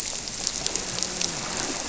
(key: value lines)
label: biophony, grouper
recorder: SoundTrap 300